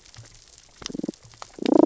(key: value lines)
label: biophony, damselfish
recorder: SoundTrap 600 or HydroMoth